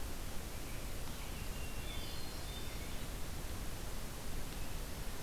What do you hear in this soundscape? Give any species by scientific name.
Turdus migratorius, Catharus guttatus